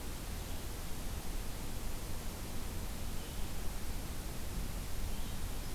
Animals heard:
forest ambience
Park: Acadia National Park